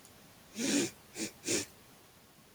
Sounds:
Sniff